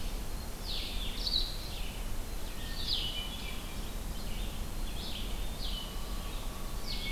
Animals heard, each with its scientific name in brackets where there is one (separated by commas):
Hermit Thrush (Catharus guttatus), Blue-headed Vireo (Vireo solitarius), Red-eyed Vireo (Vireo olivaceus)